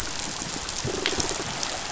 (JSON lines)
{"label": "biophony, pulse", "recorder": "SoundTrap 500"}